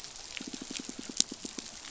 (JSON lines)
{"label": "biophony, pulse", "recorder": "SoundTrap 500"}